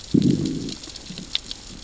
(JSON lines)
{"label": "biophony, growl", "recorder": "SoundTrap 600 or HydroMoth"}